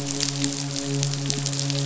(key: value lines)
label: biophony, midshipman
recorder: SoundTrap 500